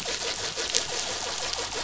{"label": "anthrophony, boat engine", "recorder": "SoundTrap 500"}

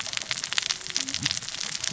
{"label": "biophony, cascading saw", "recorder": "SoundTrap 600 or HydroMoth"}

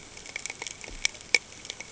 {"label": "ambient", "recorder": "HydroMoth"}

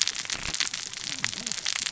{"label": "biophony, cascading saw", "recorder": "SoundTrap 600 or HydroMoth"}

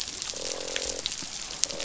{"label": "biophony, croak", "recorder": "SoundTrap 500"}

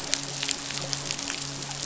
{"label": "biophony, midshipman", "recorder": "SoundTrap 500"}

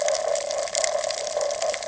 {"label": "ambient", "recorder": "HydroMoth"}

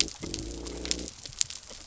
{"label": "biophony", "recorder": "SoundTrap 300"}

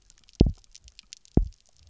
{"label": "biophony, double pulse", "recorder": "SoundTrap 300"}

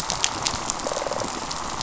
{"label": "biophony, rattle response", "recorder": "SoundTrap 500"}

